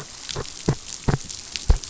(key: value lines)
label: biophony
recorder: SoundTrap 500